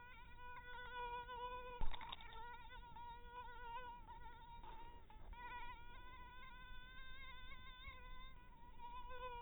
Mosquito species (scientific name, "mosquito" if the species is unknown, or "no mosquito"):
mosquito